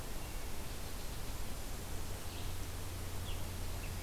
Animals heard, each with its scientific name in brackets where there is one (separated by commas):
unknown mammal, Scarlet Tanager (Piranga olivacea)